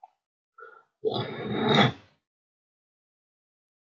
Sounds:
Throat clearing